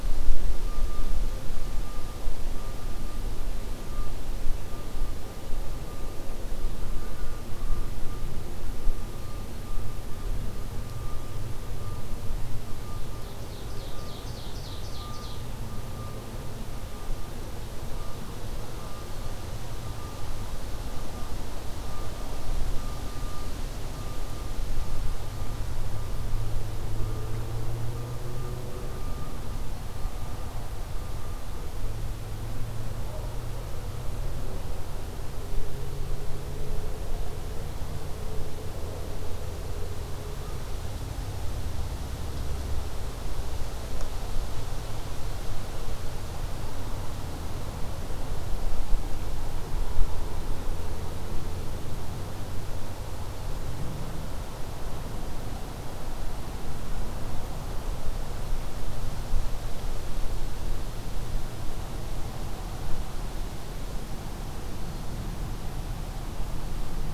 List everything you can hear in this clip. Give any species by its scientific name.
Seiurus aurocapilla